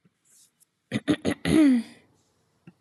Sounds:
Throat clearing